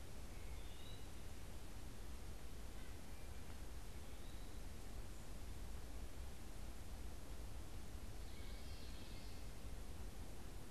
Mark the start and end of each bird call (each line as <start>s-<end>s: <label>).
0.1s-1.1s: Wood Thrush (Hylocichla mustelina)
0.2s-1.1s: Eastern Wood-Pewee (Contopus virens)
2.5s-3.2s: unidentified bird
3.9s-4.6s: Eastern Wood-Pewee (Contopus virens)
7.7s-9.6s: Common Yellowthroat (Geothlypis trichas)